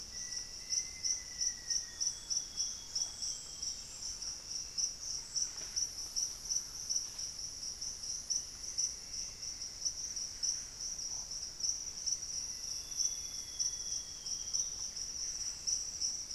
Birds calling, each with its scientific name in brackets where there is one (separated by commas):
Plumbeous Antbird (Myrmelastes hyperythrus), Thrush-like Wren (Campylorhynchus turdinus), Black-faced Antthrush (Formicarius analis), Amazonian Grosbeak (Cyanoloxia rothschildii)